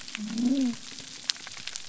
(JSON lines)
{"label": "biophony", "recorder": "SoundTrap 300"}